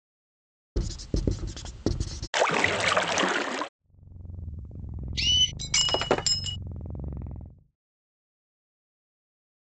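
First at 0.76 seconds, you can hear writing. Then at 2.33 seconds, splashing is audible. Later, at 3.77 seconds, a cat purrs quietly, fading in and then fading out by 7.77 seconds. Meanwhile, at 5.14 seconds, chirping is heard. Following that, at 5.59 seconds, glass shatters.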